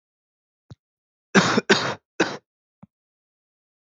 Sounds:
Cough